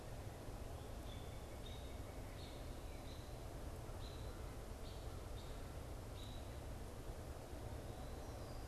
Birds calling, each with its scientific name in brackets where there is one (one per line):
American Robin (Turdus migratorius)